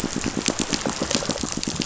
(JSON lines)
{"label": "biophony, pulse", "recorder": "SoundTrap 500"}